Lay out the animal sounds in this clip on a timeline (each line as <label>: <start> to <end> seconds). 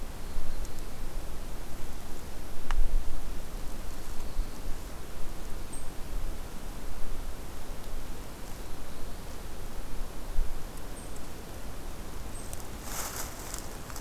Black-throated Blue Warbler (Setophaga caerulescens): 0.0 to 1.2 seconds
Black-throated Blue Warbler (Setophaga caerulescens): 3.8 to 5.1 seconds
Black-throated Blue Warbler (Setophaga caerulescens): 8.4 to 9.6 seconds